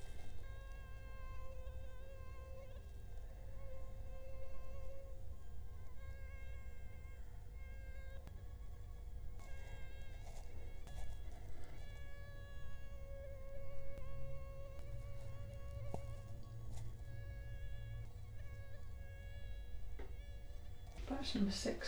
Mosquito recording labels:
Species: Culex quinquefasciatus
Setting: cup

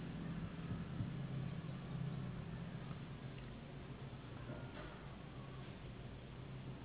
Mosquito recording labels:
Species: Anopheles gambiae s.s.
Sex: female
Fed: unfed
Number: one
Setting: insect culture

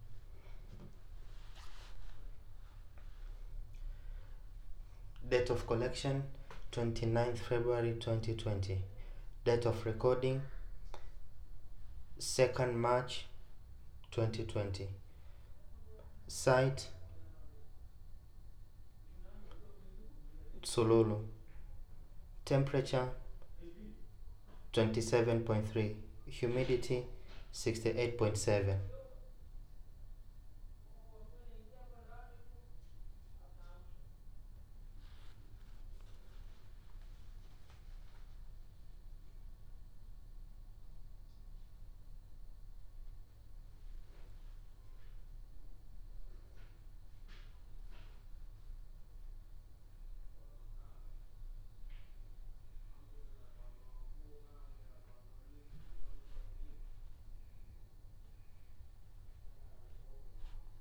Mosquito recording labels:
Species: no mosquito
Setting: cup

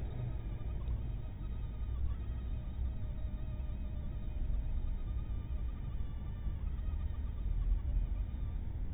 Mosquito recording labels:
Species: mosquito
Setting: cup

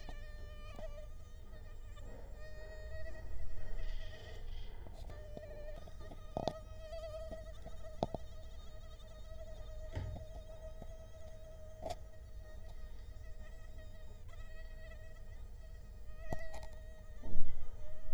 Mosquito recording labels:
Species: Culex quinquefasciatus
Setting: cup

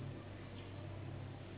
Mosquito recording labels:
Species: Anopheles gambiae s.s.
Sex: female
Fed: unfed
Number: one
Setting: insect culture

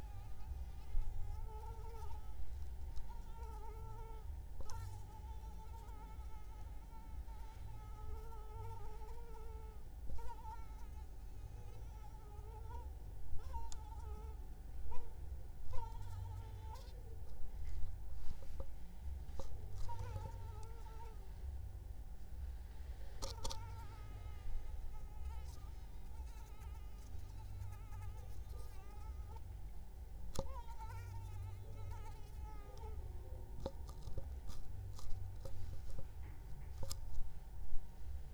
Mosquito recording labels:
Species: Anopheles arabiensis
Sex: female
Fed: unfed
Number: one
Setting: cup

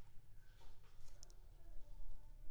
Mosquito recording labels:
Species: Anopheles squamosus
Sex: female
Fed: unfed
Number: one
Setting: cup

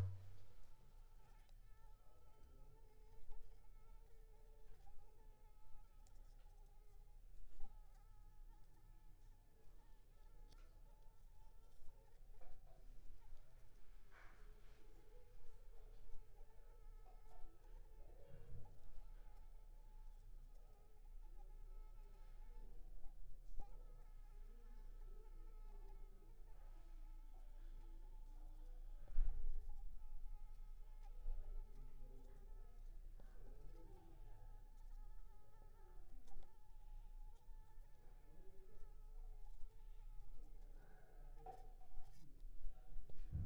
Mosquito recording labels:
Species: Anopheles arabiensis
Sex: female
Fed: unfed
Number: one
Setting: cup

